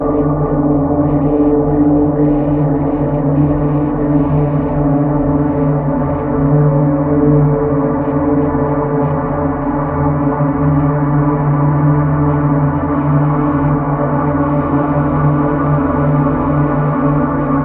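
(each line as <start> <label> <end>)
0.0 Deeply reverberated piano music. 17.6
0.0 Whooshing sounds occur frequently. 17.6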